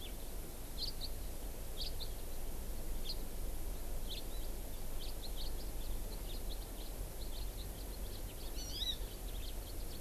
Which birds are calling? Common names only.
House Finch, Hawaii Amakihi